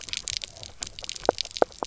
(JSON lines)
{"label": "biophony, knock croak", "recorder": "SoundTrap 300"}